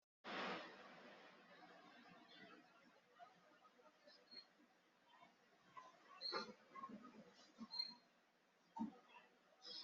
{"expert_labels": [{"quality": "no cough present", "cough_type": "unknown", "dyspnea": false, "wheezing": false, "stridor": false, "choking": false, "congestion": false, "nothing": true, "diagnosis": "healthy cough", "severity": "unknown"}]}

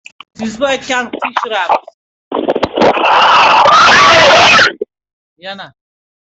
{"expert_labels": [{"quality": "no cough present", "cough_type": "unknown", "dyspnea": false, "wheezing": false, "stridor": false, "choking": false, "congestion": false, "nothing": false, "diagnosis": "healthy cough", "severity": "unknown"}]}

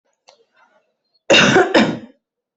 {"expert_labels": [{"quality": "good", "cough_type": "wet", "dyspnea": false, "wheezing": false, "stridor": false, "choking": false, "congestion": false, "nothing": true, "diagnosis": "lower respiratory tract infection", "severity": "mild"}], "age": 28, "gender": "female", "respiratory_condition": false, "fever_muscle_pain": false, "status": "healthy"}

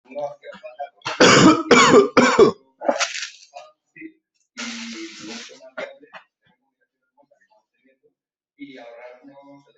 {"expert_labels": [{"quality": "ok", "cough_type": "unknown", "dyspnea": false, "wheezing": false, "stridor": false, "choking": false, "congestion": false, "nothing": true, "diagnosis": "healthy cough", "severity": "pseudocough/healthy cough"}], "age": 45, "gender": "female", "respiratory_condition": false, "fever_muscle_pain": false, "status": "symptomatic"}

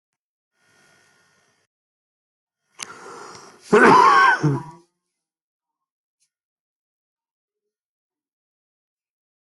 {"expert_labels": [{"quality": "good", "cough_type": "dry", "dyspnea": false, "wheezing": false, "stridor": true, "choking": false, "congestion": false, "nothing": true, "diagnosis": "lower respiratory tract infection", "severity": "mild"}], "age": 33, "gender": "male", "respiratory_condition": true, "fever_muscle_pain": false, "status": "symptomatic"}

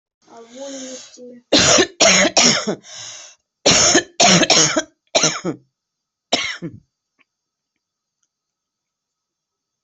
{"expert_labels": [{"quality": "ok", "cough_type": "dry", "dyspnea": false, "wheezing": true, "stridor": false, "choking": false, "congestion": false, "nothing": false, "diagnosis": "COVID-19", "severity": "severe"}]}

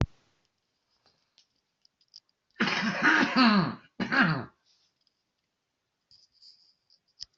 {"expert_labels": [{"quality": "good", "cough_type": "unknown", "dyspnea": false, "wheezing": false, "stridor": false, "choking": false, "congestion": false, "nothing": true, "diagnosis": "healthy cough", "severity": "pseudocough/healthy cough"}], "age": 63, "gender": "male", "respiratory_condition": false, "fever_muscle_pain": false, "status": "healthy"}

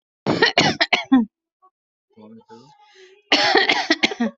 {"expert_labels": [{"quality": "good", "cough_type": "dry", "dyspnea": false, "wheezing": false, "stridor": false, "choking": false, "congestion": false, "nothing": true, "diagnosis": "upper respiratory tract infection", "severity": "mild"}], "gender": "female", "respiratory_condition": true, "fever_muscle_pain": false, "status": "healthy"}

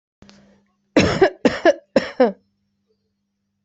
{"expert_labels": [{"quality": "good", "cough_type": "dry", "dyspnea": false, "wheezing": false, "stridor": false, "choking": false, "congestion": false, "nothing": true, "diagnosis": "upper respiratory tract infection", "severity": "mild"}], "age": 39, "gender": "female", "respiratory_condition": false, "fever_muscle_pain": false, "status": "healthy"}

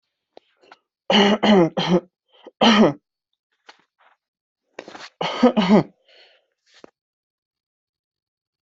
{"expert_labels": [{"quality": "good", "cough_type": "dry", "dyspnea": false, "wheezing": false, "stridor": false, "choking": false, "congestion": false, "nothing": true, "diagnosis": "upper respiratory tract infection", "severity": "unknown"}], "age": 25, "gender": "male", "respiratory_condition": false, "fever_muscle_pain": false, "status": "symptomatic"}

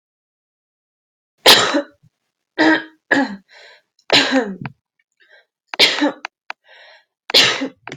{"expert_labels": [{"quality": "ok", "cough_type": "wet", "dyspnea": false, "wheezing": false, "stridor": false, "choking": false, "congestion": false, "nothing": true, "diagnosis": "lower respiratory tract infection", "severity": "mild"}], "age": 22, "gender": "female", "respiratory_condition": false, "fever_muscle_pain": false, "status": "symptomatic"}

